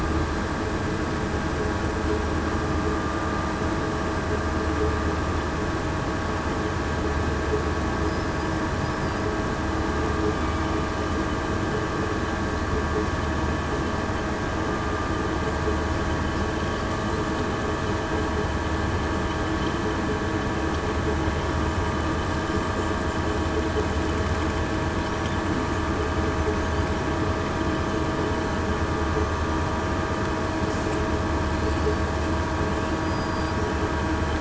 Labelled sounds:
33.0	33.5	killer whale, southern resident, 4.8 to 4.9 kHz

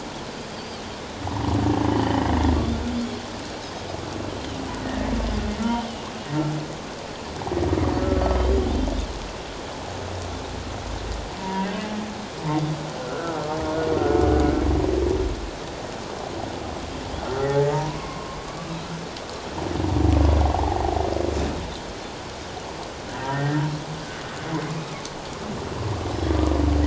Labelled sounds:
1.9	2.3	humpback whale, 1.7 to 3.2 kHz
11.4	11.8	humpback whale, 0.91 to 1.7 kHz
13.0	13.4	humpback whale, 1.2 to 1.6 kHz
17.4	18.4	humpback whale, 0.81 to 2.2 kHz
20.5	20.8	humpback whale, 0.78 to 0.97 kHz
23.1	23.6	humpback whale, 1.5 to 2.0 kHz
24.7	24.9	humpback whale, 2.4 to 2.7 kHz

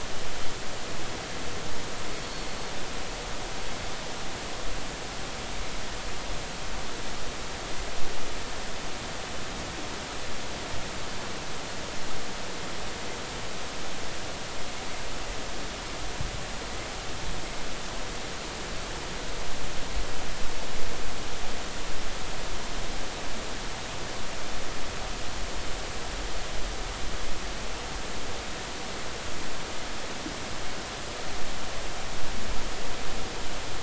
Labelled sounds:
2.2	2.5	Pacific white-sided dolphin, 4.3 to 4.5 kHz

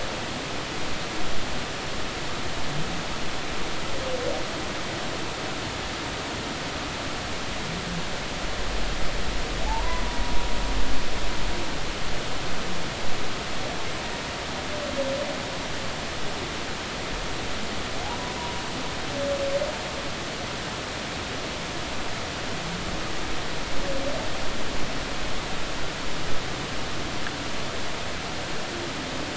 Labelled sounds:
9.7	10.0	humpback whale, 0.80 to 1.1 kHz

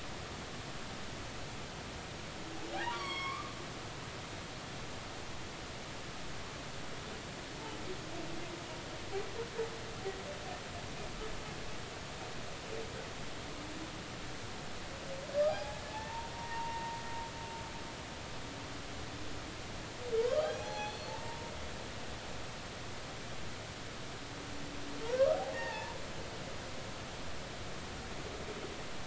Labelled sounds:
2.7	3.5	humpback whale, 0.80 to 5.7 kHz
15.4	17.0	humpback whale, 0.80 to 5.1 kHz
20.2	21.5	humpback whale, 0.80 to 6.0 kHz
25.5	26.0	humpback whale, 0.83 to 1.9 kHz

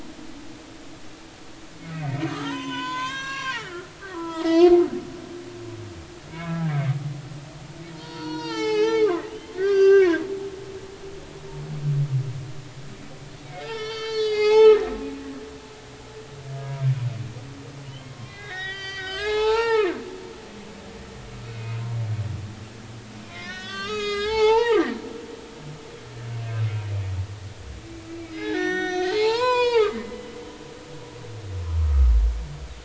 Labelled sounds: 1.9	4.7	humpback whale, 0.83 to 7.1 kHz
6.3	6.9	humpback whale, 1.5 to 2.4 kHz
7.9	10.2	humpback whale, 0.80 to 6.7 kHz
13.5	14.8	humpback whale, 0.80 to 6.9 kHz
16.6	16.8	humpback whale, 0.90 to 1.0 kHz
17.8	19.9	humpback whale, 0.80 to 6.7 kHz
21.5	21.8	humpback whale, 2.4 to 2.6 kHz
23.2	24.9	humpback whale, 0.80 to 7.1 kHz
28.1	30.3	humpback whale, 0.80 to 7.8 kHz
31.8	32.1	humpback whale, 1.1 to 1.3 kHz

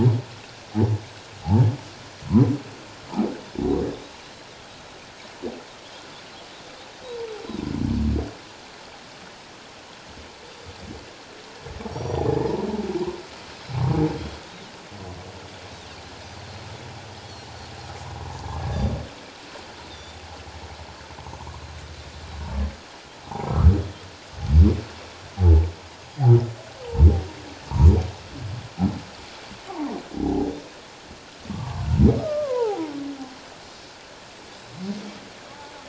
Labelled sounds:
11.9	12.3	Pacific white-sided dolphin, 3.3 to 5.9 kHz
12.3	12.7	humpback whale, 0.78 to 1.0 kHz
19.9	20.2	Pacific white-sided dolphin, 3.4 to 3.8 kHz
21.4	21.6	humpback whale, 0.81 to 1.2 kHz
23.2	23.5	humpback whale, 0.78 to 1.1 kHz
25.4	25.6	humpback whale, 0.78 to 0.91 kHz
29.7	30.0	humpback whale, 0.78 to 1.2 kHz
31.5	32.8	humpback whale, 0.78 to 1.3 kHz
33.6	33.9	Pacific white-sided dolphin, 5.1 to 5.4 kHz

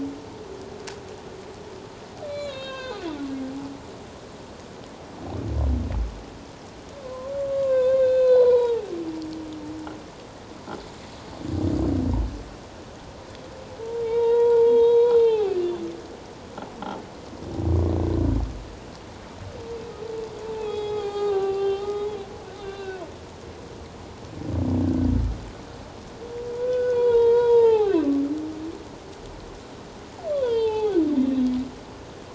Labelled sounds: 2.2	3.0	humpback whale, 0.97 to 4.8 kHz
7.0	8.9	humpback whale, 0.78 to 4.3 kHz
14.0	15.6	humpback whale, 0.78 to 4.2 kHz
20.5	22.1	humpback whale, 0.78 to 7.5 kHz
22.6	23.0	humpback whale, 1.4 to 4.1 kHz
26.5	28.0	humpback whale, 0.78 to 4.0 kHz
30.3	31.0	humpback whale, 0.78 to 4.2 kHz

